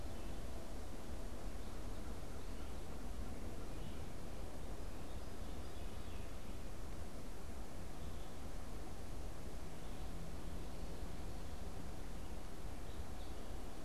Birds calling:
unidentified bird

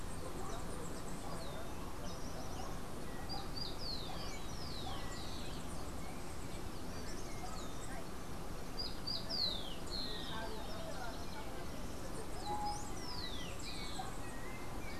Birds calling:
Rufous-collared Sparrow (Zonotrichia capensis)
Yellow-backed Oriole (Icterus chrysater)
House Wren (Troglodytes aedon)

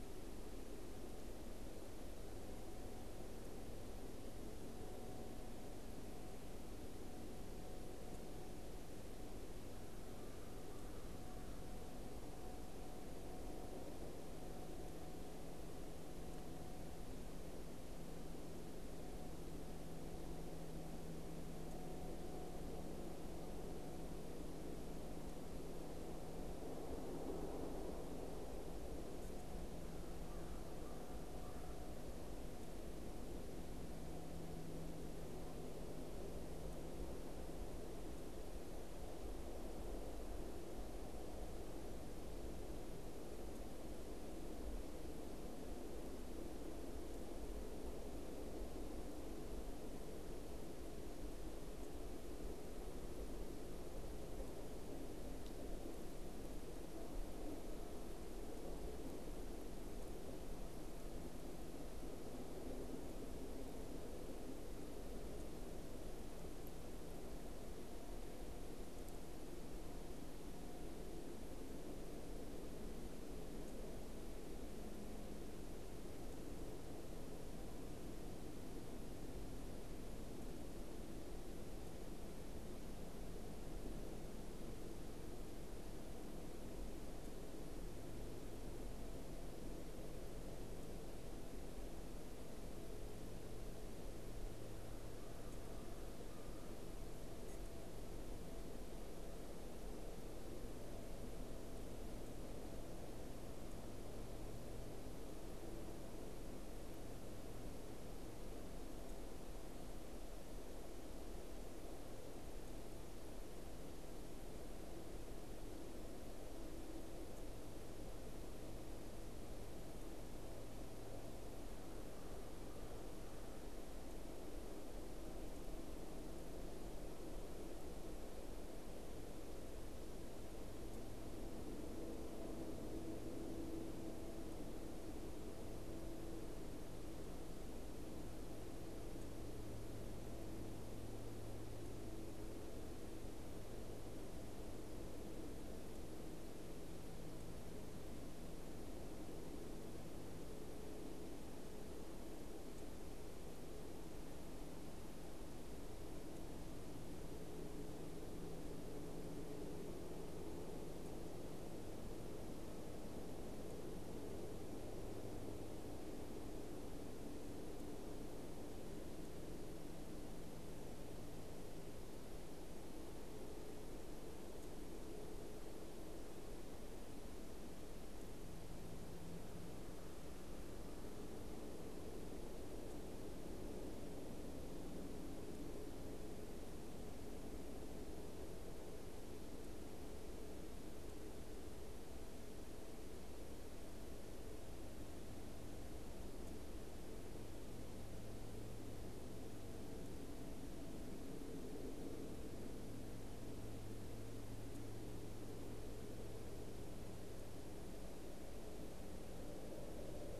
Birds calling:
unidentified bird

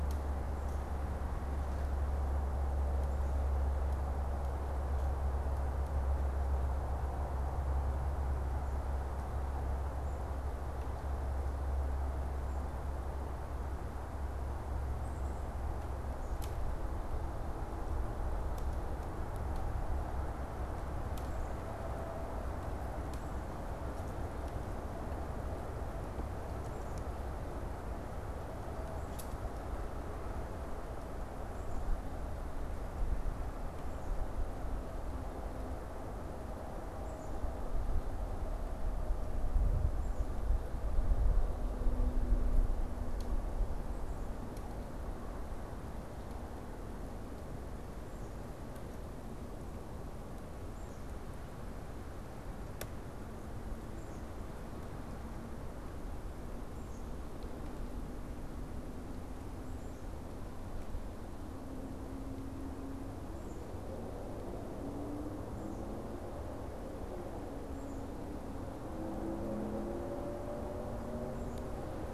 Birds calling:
Black-capped Chickadee (Poecile atricapillus)

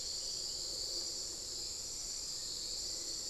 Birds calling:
Black-faced Antthrush (Formicarius analis)

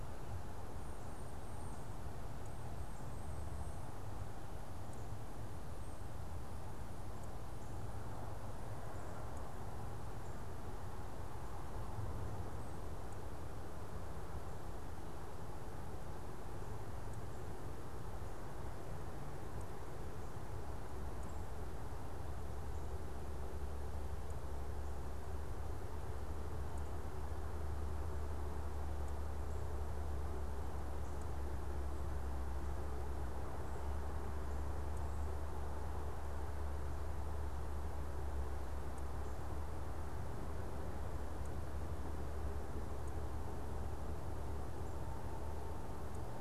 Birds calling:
Cedar Waxwing (Bombycilla cedrorum)

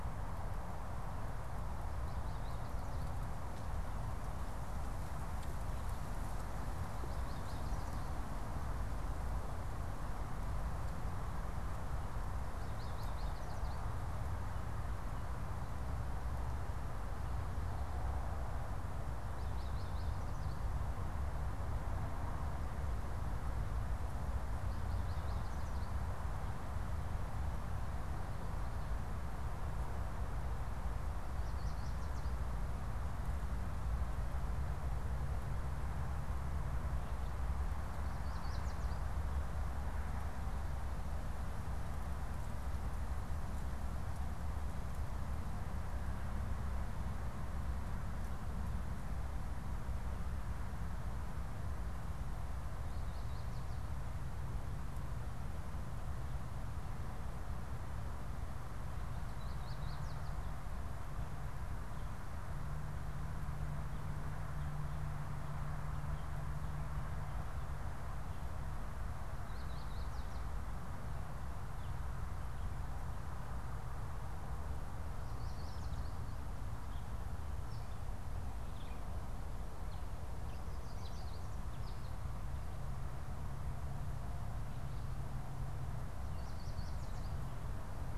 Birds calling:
Yellow Warbler (Setophaga petechia)
American Goldfinch (Spinus tristis)

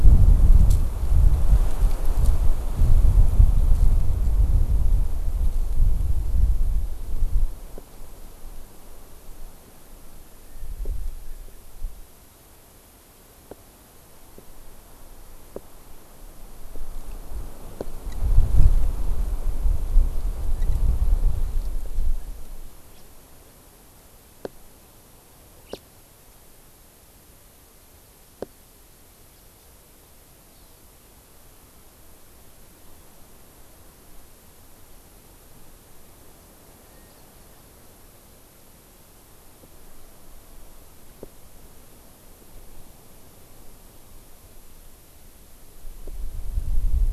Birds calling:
House Finch (Haemorhous mexicanus)
Hawaii Amakihi (Chlorodrepanis virens)

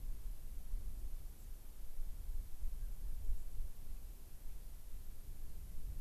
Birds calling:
White-crowned Sparrow (Zonotrichia leucophrys)

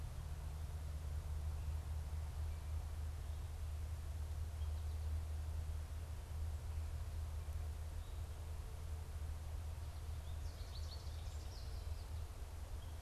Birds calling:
American Goldfinch (Spinus tristis)

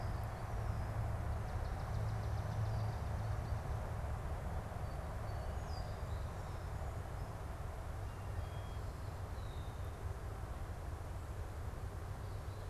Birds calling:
Swamp Sparrow (Melospiza georgiana)
Song Sparrow (Melospiza melodia)
Red-winged Blackbird (Agelaius phoeniceus)

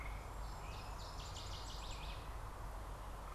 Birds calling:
Black-capped Chickadee (Poecile atricapillus)
Northern Waterthrush (Parkesia noveboracensis)

